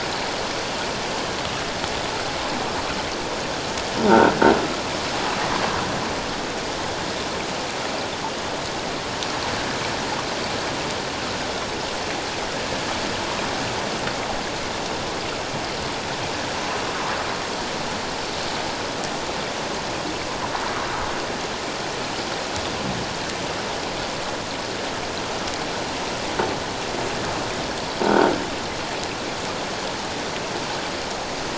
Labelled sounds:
4.1	4.3	croaking sound likely from a nearby submerged object, 1.3 to 1.6 kHz
28.1	28.3	croaking sound likely from a nearby submerged object, 1.3 to 1.6 kHz

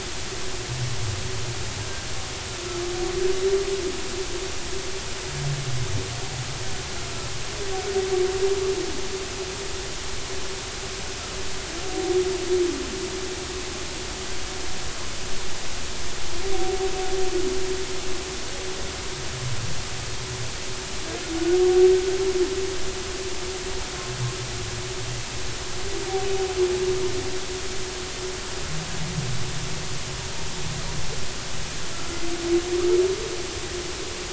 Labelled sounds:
31.9	32.2	humpback whale, 1.3 to 1.4 kHz

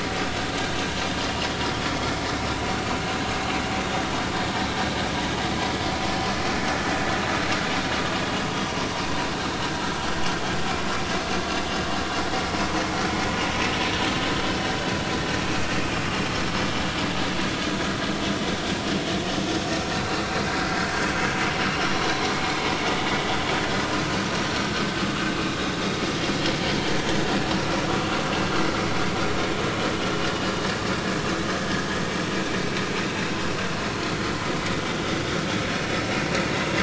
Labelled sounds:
20.4	20.7	vessel noise, 4.8 to 5.0 kHz
33.0	33.3	vessel noise, 2.5 to 2.8 kHz

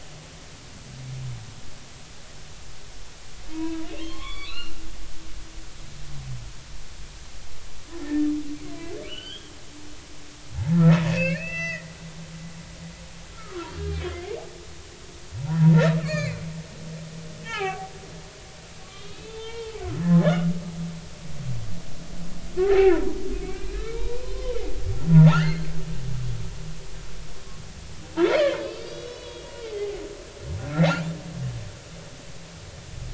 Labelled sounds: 3.5	4.7	humpback whale, 0.90 to 4.4 kHz
8.0	8.3	humpback whale, 1.7 to 1.9 kHz
9.1	9.5	humpback whale, 1.4 to 3.4 kHz
10.7	11.9	humpback whale, 1.2 to 6.1 kHz
13.3	14.3	humpback whale, 0.90 to 3.4 kHz
15.4	16.4	humpback whale, 0.80 to 5.0 kHz
17.4	17.9	humpback whale, 0.80 to 3.3 kHz
18.8	19.7	humpback whale, 0.83 to 3.7 kHz
22.6	23.2	humpback whale, 0.80 to 2.0 kHz
23.4	24.6	humpback whale, 0.86 to 4.2 kHz
25.1	25.7	humpback whale, 0.80 to 4.6 kHz
28.3	30.0	humpback whale, 0.80 to 4.9 kHz

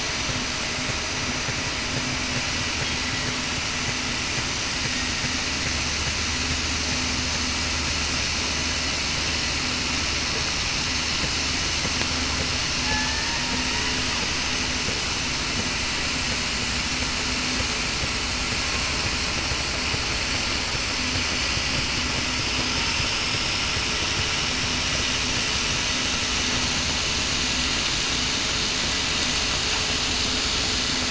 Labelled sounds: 12.8	13.2	killer whale, southern resident, 0.82 to 0.94 kHz

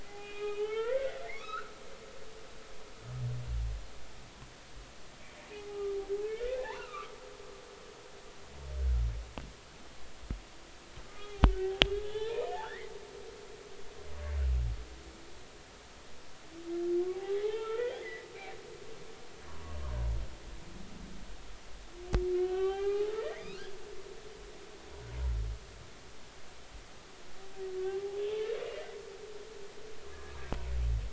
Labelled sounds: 0.1	1.7	humpback whale, 0.80 to 3.7 kHz
5.6	7.1	humpback whale, 0.80 to 2.9 kHz
11.0	11.3	humpback whale, 1.2 to 1.3 kHz
12.0	12.9	humpback whale, 0.83 to 3.6 kHz
17.1	18.3	humpback whale, 0.80 to 2.3 kHz
19.5	19.8	humpback whale, 0.93 to 1.2 kHz
22.3	23.8	humpback whale, 0.80 to 3.9 kHz
28.2	29.0	humpback whale, 1.9 to 3.6 kHz

